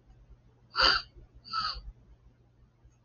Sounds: Sniff